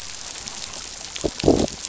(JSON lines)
{"label": "biophony, growl", "recorder": "SoundTrap 500"}